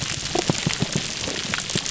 {"label": "biophony", "recorder": "SoundTrap 300"}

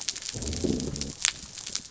{"label": "biophony", "recorder": "SoundTrap 300"}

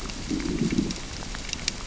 {"label": "biophony, growl", "recorder": "SoundTrap 600 or HydroMoth"}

